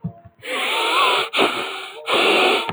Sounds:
Sniff